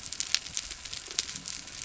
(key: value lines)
label: biophony
recorder: SoundTrap 300